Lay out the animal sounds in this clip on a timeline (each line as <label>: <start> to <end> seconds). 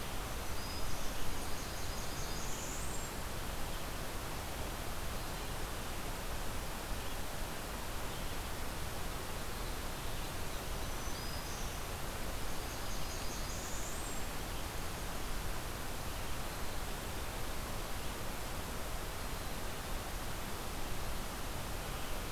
Black-throated Green Warbler (Setophaga virens): 0.0 to 1.3 seconds
Blackburnian Warbler (Setophaga fusca): 1.0 to 3.3 seconds
Black-throated Green Warbler (Setophaga virens): 10.5 to 12.0 seconds
Blackburnian Warbler (Setophaga fusca): 12.3 to 14.3 seconds